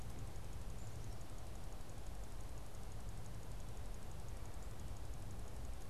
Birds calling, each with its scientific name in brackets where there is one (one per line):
Black-capped Chickadee (Poecile atricapillus)